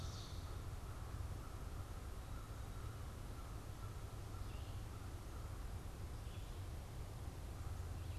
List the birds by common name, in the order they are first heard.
American Crow, Red-eyed Vireo